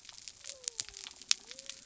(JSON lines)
{"label": "biophony", "recorder": "SoundTrap 300"}